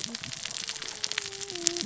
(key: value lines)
label: biophony, cascading saw
recorder: SoundTrap 600 or HydroMoth